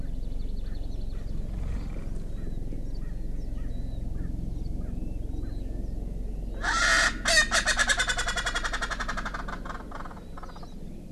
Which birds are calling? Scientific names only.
Pternistis erckelii